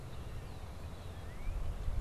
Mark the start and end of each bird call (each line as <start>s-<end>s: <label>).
0.0s-1.8s: Red-winged Blackbird (Agelaius phoeniceus)
1.0s-1.6s: Northern Cardinal (Cardinalis cardinalis)